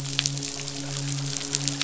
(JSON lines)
{"label": "biophony, midshipman", "recorder": "SoundTrap 500"}